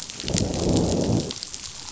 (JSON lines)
{"label": "biophony, growl", "recorder": "SoundTrap 500"}